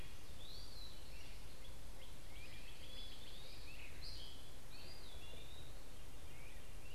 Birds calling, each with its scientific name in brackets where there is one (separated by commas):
Great Crested Flycatcher (Myiarchus crinitus), Gray Catbird (Dumetella carolinensis), Eastern Wood-Pewee (Contopus virens), Northern Cardinal (Cardinalis cardinalis)